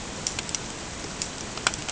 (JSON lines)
{"label": "ambient", "recorder": "HydroMoth"}